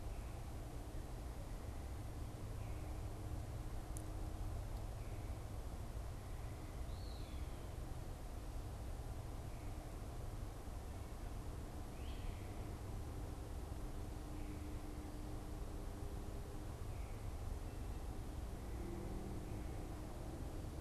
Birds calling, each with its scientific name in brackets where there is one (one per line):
Eastern Wood-Pewee (Contopus virens)
Great Crested Flycatcher (Myiarchus crinitus)